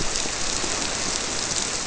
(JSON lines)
{"label": "biophony", "recorder": "SoundTrap 300"}